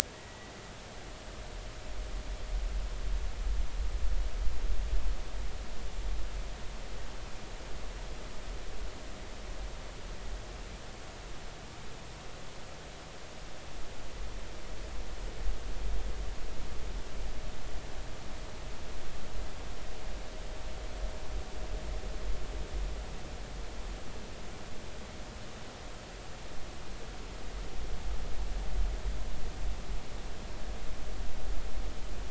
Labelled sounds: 0.1	0.5	humpback whale, 1.9 to 2.0 kHz

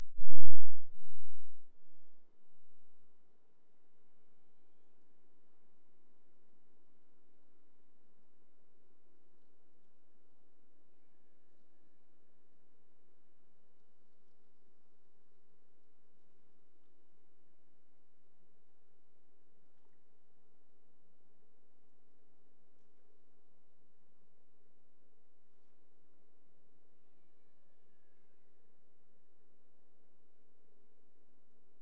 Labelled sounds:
3.6	5.2	killer whale, Bigg's (transient), AT1 transient, 1.9 to 7.4 kHz
11.0	12.2	killer whale, Bigg's (transient), AT1 transient, 1.6 to 5.2 kHz
27.0	28.6	killer whale, Bigg's (transient), AT1 transient, 1.3 to 6.0 kHz

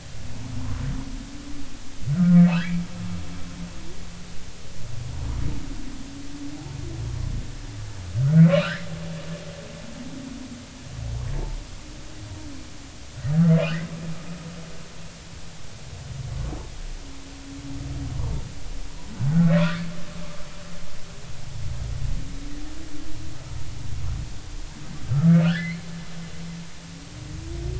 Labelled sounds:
2.1	2.5	humpback whale, 1.2 to 1.6 kHz
8.4	8.9	humpback whale, 1.3 to 3.0 kHz
13.6	13.9	humpback whale, 1.2 to 2.1 kHz
19.3	19.9	humpback whale, 1.3 to 1.8 kHz
25.1	25.7	humpback whale, 1.2 to 1.8 kHz

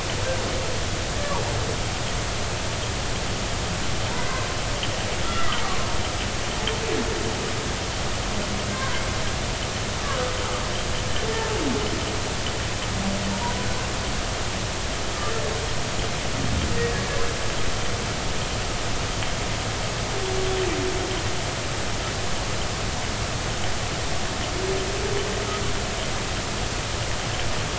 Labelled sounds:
4.1	4.4	humpback whale, 2.0 to 2.1 kHz
5.2	5.9	humpback whale, 1.0 to 1.4 kHz
8.7	9.0	humpback whale, 0.93 to 1.2 kHz
11.3	11.6	humpback whale, 0.80 to 0.93 kHz

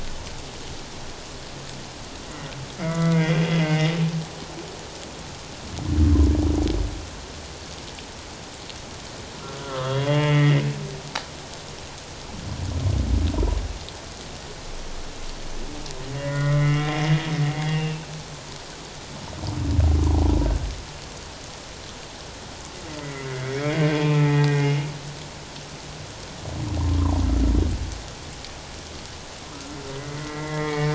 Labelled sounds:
2.2	3.9	humpback whale, 1.1 to 3.5 kHz
9.6	10.6	humpback whale, 1.0 to 3.4 kHz
16.1	17.0	humpback whale, 1.3 to 3.4 kHz
17.7	18.1	humpback whale, 2.6 to 2.8 kHz
23.0	24.8	humpback whale, 0.81 to 3.4 kHz
29.5	30.9	humpback whale, 1.2 to 3.4 kHz

